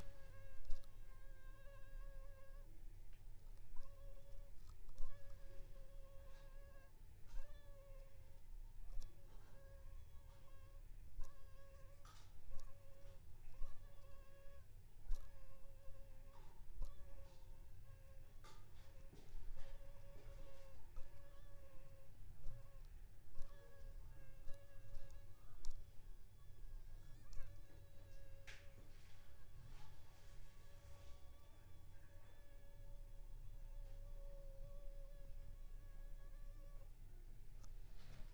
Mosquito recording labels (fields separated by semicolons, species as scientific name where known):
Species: Anopheles funestus s.s.; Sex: female; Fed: unfed; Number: one; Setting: cup